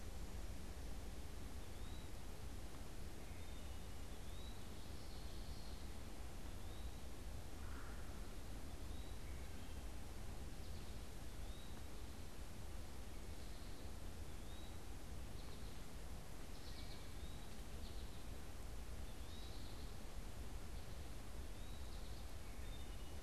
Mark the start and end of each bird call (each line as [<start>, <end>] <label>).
[1.50, 12.00] Eastern Wood-Pewee (Contopus virens)
[3.00, 4.00] Wood Thrush (Hylocichla mustelina)
[4.50, 6.00] Common Yellowthroat (Geothlypis trichas)
[7.40, 8.30] Red-bellied Woodpecker (Melanerpes carolinus)
[9.00, 10.10] Wood Thrush (Hylocichla mustelina)
[10.20, 22.60] American Goldfinch (Spinus tristis)
[14.40, 22.10] Eastern Wood-Pewee (Contopus virens)
[22.30, 23.20] Wood Thrush (Hylocichla mustelina)